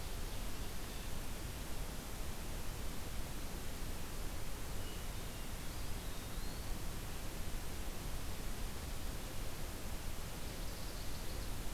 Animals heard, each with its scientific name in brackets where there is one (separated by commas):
Eastern Wood-Pewee (Contopus virens), Ovenbird (Seiurus aurocapilla)